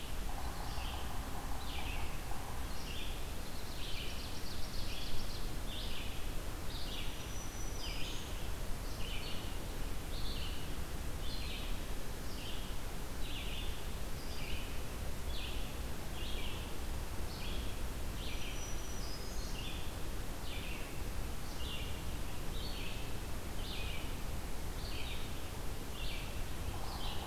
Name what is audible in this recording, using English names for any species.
Red-eyed Vireo, Yellow-bellied Sapsucker, Ovenbird, Black-throated Green Warbler